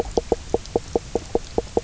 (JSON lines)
{"label": "biophony, knock croak", "recorder": "SoundTrap 300"}